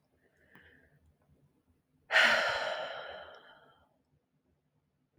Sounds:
Sigh